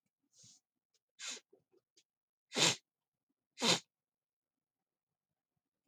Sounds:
Sniff